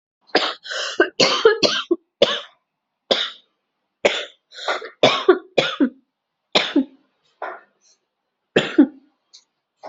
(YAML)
expert_labels:
- quality: ok
  cough_type: dry
  dyspnea: false
  wheezing: false
  stridor: false
  choking: false
  congestion: false
  nothing: true
  diagnosis: COVID-19
  severity: mild
age: 32
gender: female
respiratory_condition: false
fever_muscle_pain: false
status: symptomatic